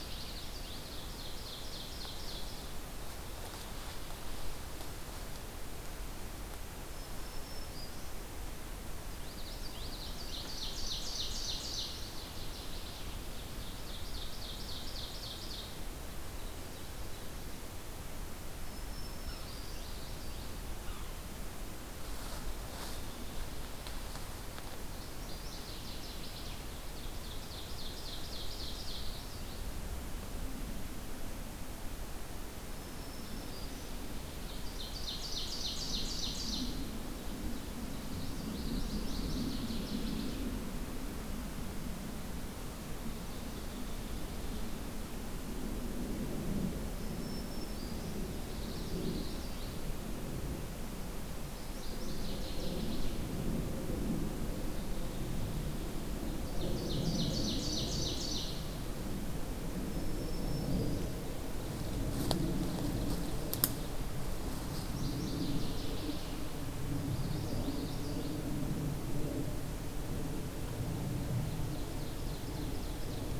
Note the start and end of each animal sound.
[0.00, 1.29] Northern Waterthrush (Parkesia noveboracensis)
[0.89, 2.62] Ovenbird (Seiurus aurocapilla)
[6.81, 8.19] Black-throated Green Warbler (Setophaga virens)
[9.04, 10.60] Common Yellowthroat (Geothlypis trichas)
[10.19, 12.09] Ovenbird (Seiurus aurocapilla)
[11.59, 13.16] Northern Waterthrush (Parkesia noveboracensis)
[13.24, 15.79] Ovenbird (Seiurus aurocapilla)
[18.39, 19.98] Black-throated Green Warbler (Setophaga virens)
[19.15, 19.39] Yellow-bellied Sapsucker (Sphyrapicus varius)
[19.19, 20.56] Common Yellowthroat (Geothlypis trichas)
[20.77, 21.05] Yellow-bellied Sapsucker (Sphyrapicus varius)
[24.80, 26.70] Northern Waterthrush (Parkesia noveboracensis)
[26.70, 29.11] Ovenbird (Seiurus aurocapilla)
[28.60, 29.73] Common Yellowthroat (Geothlypis trichas)
[32.62, 34.01] Black-throated Green Warbler (Setophaga virens)
[34.39, 36.77] Ovenbird (Seiurus aurocapilla)
[37.76, 39.12] Common Yellowthroat (Geothlypis trichas)
[37.88, 40.36] Northern Waterthrush (Parkesia noveboracensis)
[46.96, 48.18] Black-throated Green Warbler (Setophaga virens)
[48.34, 49.84] Common Yellowthroat (Geothlypis trichas)
[51.51, 53.20] Northern Waterthrush (Parkesia noveboracensis)
[56.23, 58.75] Ovenbird (Seiurus aurocapilla)
[59.75, 61.18] Black-throated Green Warbler (Setophaga virens)
[64.88, 66.30] Northern Waterthrush (Parkesia noveboracensis)
[66.95, 68.47] Common Yellowthroat (Geothlypis trichas)
[71.28, 73.39] Ovenbird (Seiurus aurocapilla)

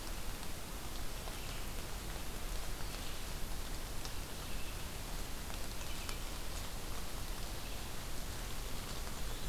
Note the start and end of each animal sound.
[1.25, 9.49] Red-eyed Vireo (Vireo olivaceus)

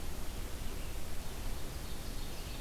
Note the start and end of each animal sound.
[0.00, 2.61] Red-eyed Vireo (Vireo olivaceus)
[1.41, 2.61] Ovenbird (Seiurus aurocapilla)

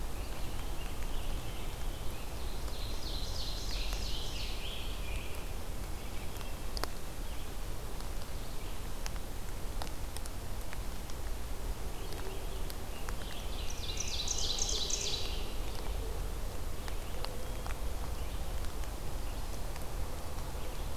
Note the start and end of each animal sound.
[0.00, 2.61] Scarlet Tanager (Piranga olivacea)
[2.19, 4.78] Ovenbird (Seiurus aurocapilla)
[3.24, 5.97] Scarlet Tanager (Piranga olivacea)
[11.76, 14.87] Scarlet Tanager (Piranga olivacea)
[13.20, 15.68] Ovenbird (Seiurus aurocapilla)

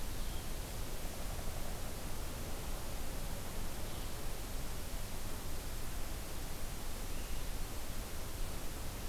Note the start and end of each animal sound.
[0.00, 9.09] Blue-headed Vireo (Vireo solitarius)

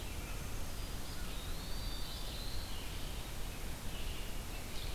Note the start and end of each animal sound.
[0.00, 4.94] Red-eyed Vireo (Vireo olivaceus)
[0.76, 2.41] Eastern Wood-Pewee (Contopus virens)
[1.48, 2.86] Black-throated Blue Warbler (Setophaga caerulescens)
[4.43, 4.94] Ovenbird (Seiurus aurocapilla)

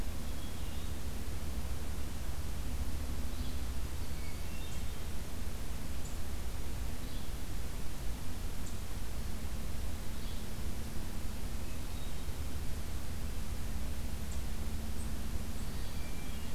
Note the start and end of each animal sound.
[0.23, 1.08] Hermit Thrush (Catharus guttatus)
[3.28, 3.55] Yellow-bellied Flycatcher (Empidonax flaviventris)
[4.06, 5.09] Hermit Thrush (Catharus guttatus)
[6.99, 7.28] Yellow-bellied Flycatcher (Empidonax flaviventris)
[10.13, 10.44] Yellow-bellied Flycatcher (Empidonax flaviventris)
[11.50, 12.56] Hermit Thrush (Catharus guttatus)
[15.28, 16.24] Black-throated Green Warbler (Setophaga virens)
[15.72, 16.01] Yellow-bellied Flycatcher (Empidonax flaviventris)
[15.73, 16.54] Hermit Thrush (Catharus guttatus)

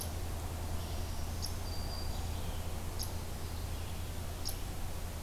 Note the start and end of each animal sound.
[0.00, 5.23] Red-eyed Vireo (Vireo olivaceus)
[0.00, 5.23] unknown mammal
[0.75, 2.43] Black-throated Green Warbler (Setophaga virens)

